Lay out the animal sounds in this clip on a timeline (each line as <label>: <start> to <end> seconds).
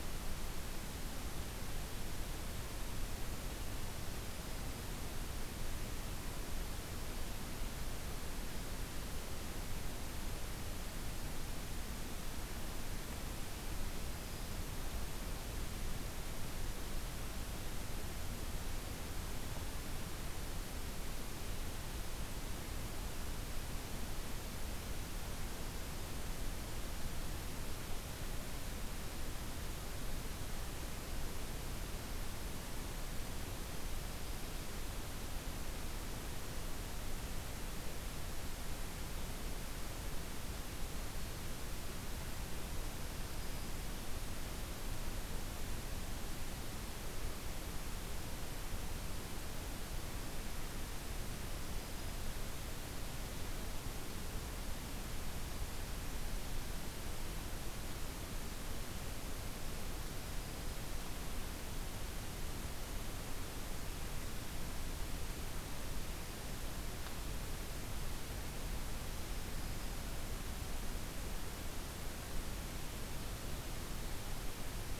Black-throated Green Warbler (Setophaga virens): 43.2 to 43.9 seconds